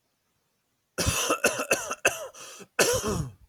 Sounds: Cough